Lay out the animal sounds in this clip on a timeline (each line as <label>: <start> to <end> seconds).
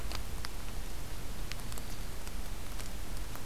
Black-throated Green Warbler (Setophaga virens): 1.5 to 2.2 seconds